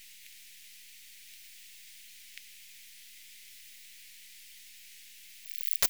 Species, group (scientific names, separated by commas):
Poecilimon nobilis, Orthoptera